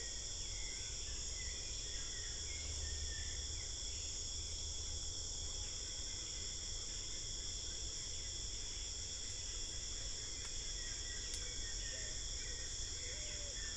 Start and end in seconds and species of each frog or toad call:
none

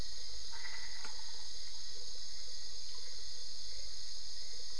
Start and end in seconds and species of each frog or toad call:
0.4	1.6	Boana albopunctata

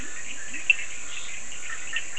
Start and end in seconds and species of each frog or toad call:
0.0	2.1	Leptodactylus latrans
0.0	2.1	Scinax perereca
0.6	0.9	Cochran's lime tree frog

